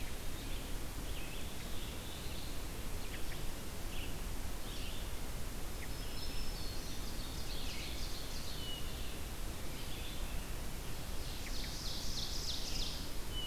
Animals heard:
Ovenbird (Seiurus aurocapilla), Black-throated Blue Warbler (Setophaga caerulescens), Red-eyed Vireo (Vireo olivaceus), American Robin (Turdus migratorius), Black-throated Green Warbler (Setophaga virens)

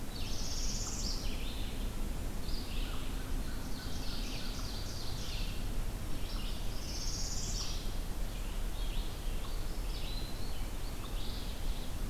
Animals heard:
Red-eyed Vireo (Vireo olivaceus), Ovenbird (Seiurus aurocapilla), unknown mammal, Northern Parula (Setophaga americana)

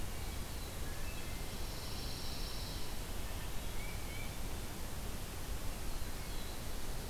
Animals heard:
Black-throated Blue Warbler (Setophaga caerulescens), Pine Warbler (Setophaga pinus), Wood Thrush (Hylocichla mustelina), Tufted Titmouse (Baeolophus bicolor)

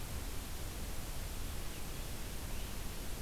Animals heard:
Great Crested Flycatcher (Myiarchus crinitus)

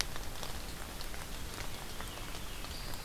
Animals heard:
Veery (Catharus fuscescens)

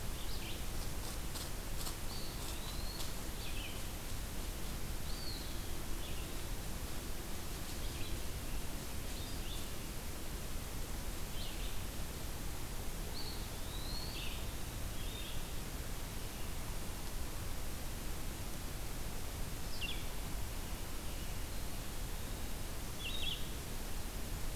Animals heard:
Red-eyed Vireo (Vireo olivaceus), Eastern Wood-Pewee (Contopus virens)

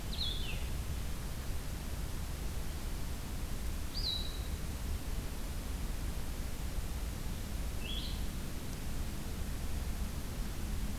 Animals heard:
Blue-headed Vireo (Vireo solitarius)

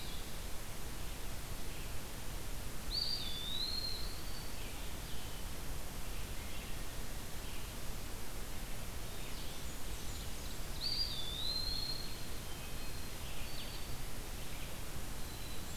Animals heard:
Wood Thrush (Hylocichla mustelina), Blue-headed Vireo (Vireo solitarius), Ovenbird (Seiurus aurocapilla), Black-capped Chickadee (Poecile atricapillus), Red-eyed Vireo (Vireo olivaceus), Eastern Wood-Pewee (Contopus virens), Blackburnian Warbler (Setophaga fusca), Black-throated Green Warbler (Setophaga virens)

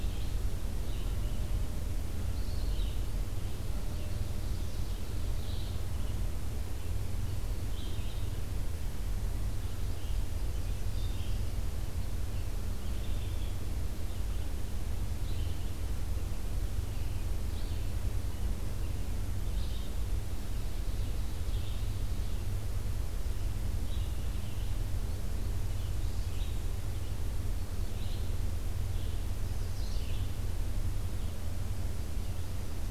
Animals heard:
Red-eyed Vireo (Vireo olivaceus), American Redstart (Setophaga ruticilla)

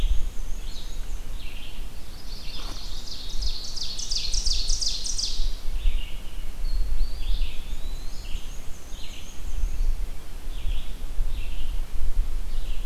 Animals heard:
Red-eyed Vireo (Vireo olivaceus), Chestnut-sided Warbler (Setophaga pensylvanica), Ovenbird (Seiurus aurocapilla), Eastern Wood-Pewee (Contopus virens), Black-and-white Warbler (Mniotilta varia)

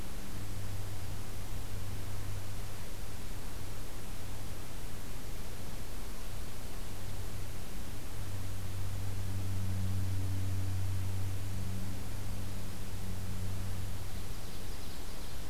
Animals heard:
Ovenbird (Seiurus aurocapilla)

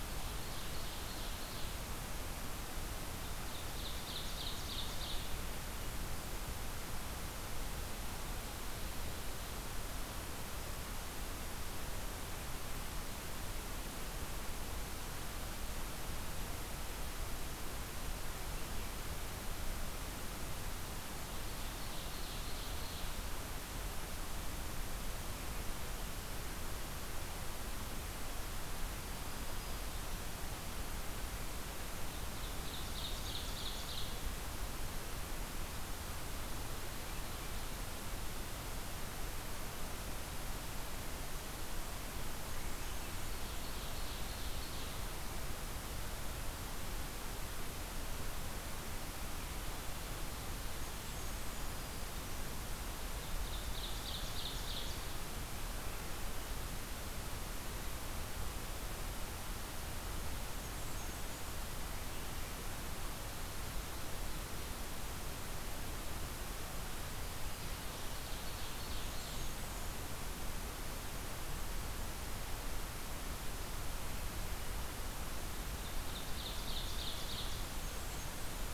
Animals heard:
Black-throated Green Warbler (Setophaga virens), Blackburnian Warbler (Setophaga fusca), Ovenbird (Seiurus aurocapilla)

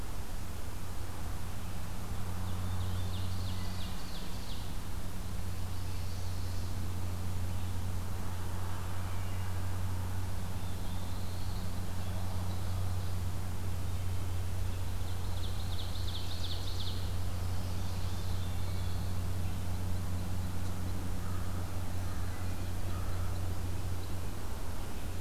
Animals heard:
American Crow (Corvus brachyrhynchos), Black-throated Blue Warbler (Setophaga caerulescens), Ovenbird (Seiurus aurocapilla)

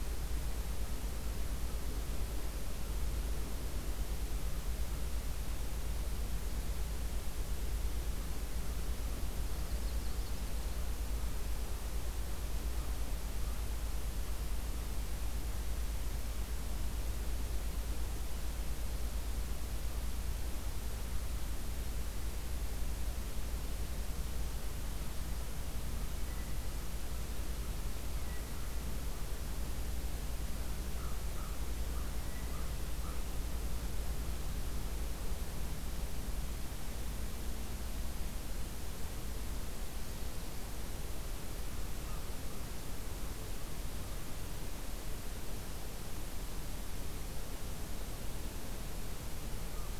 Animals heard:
American Crow (Corvus brachyrhynchos), Yellow-rumped Warbler (Setophaga coronata)

